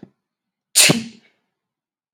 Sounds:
Sneeze